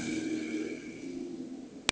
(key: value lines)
label: anthrophony, boat engine
recorder: HydroMoth